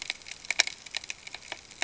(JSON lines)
{"label": "ambient", "recorder": "HydroMoth"}